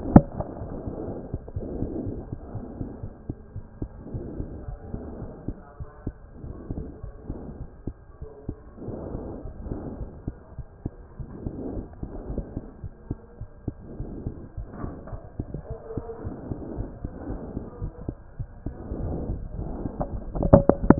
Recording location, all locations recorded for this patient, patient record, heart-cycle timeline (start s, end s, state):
aortic valve (AV)
aortic valve (AV)+mitral valve (MV)
#Age: Child
#Sex: Male
#Height: 82.0 cm
#Weight: 12.7 kg
#Pregnancy status: False
#Murmur: Absent
#Murmur locations: nan
#Most audible location: nan
#Systolic murmur timing: nan
#Systolic murmur shape: nan
#Systolic murmur grading: nan
#Systolic murmur pitch: nan
#Systolic murmur quality: nan
#Diastolic murmur timing: nan
#Diastolic murmur shape: nan
#Diastolic murmur grading: nan
#Diastolic murmur pitch: nan
#Diastolic murmur quality: nan
#Outcome: Normal
#Campaign: 2014 screening campaign
0.00	1.99	unannotated
1.99	2.06	diastole
2.06	2.20	S1
2.20	2.30	systole
2.30	2.36	S2
2.36	2.54	diastole
2.54	2.64	S1
2.64	2.80	systole
2.80	2.90	S2
2.90	3.04	diastole
3.04	3.14	S1
3.14	3.28	systole
3.28	3.36	S2
3.36	3.56	diastole
3.56	3.64	S1
3.64	3.80	systole
3.80	3.90	S2
3.90	4.16	diastole
4.16	4.24	S1
4.24	4.38	systole
4.38	4.48	S2
4.48	4.68	diastole
4.68	4.78	S1
4.78	4.92	systole
4.92	5.02	S2
5.02	5.18	diastole
5.18	5.30	S1
5.30	5.46	systole
5.46	5.56	S2
5.56	5.80	diastole
5.80	5.88	S1
5.88	6.06	systole
6.06	6.14	S2
6.14	6.26	diastole
6.26	20.99	unannotated